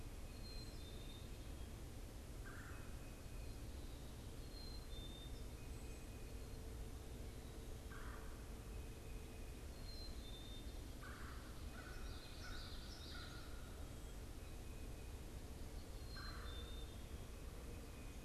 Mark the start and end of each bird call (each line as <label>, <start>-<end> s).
Black-capped Chickadee (Poecile atricapillus), 0.0-18.2 s
Red-bellied Woodpecker (Melanerpes carolinus), 0.0-18.2 s
Common Yellowthroat (Geothlypis trichas), 12.0-13.6 s